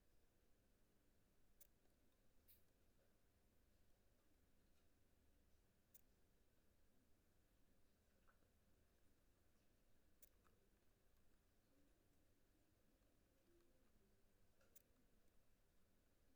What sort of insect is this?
orthopteran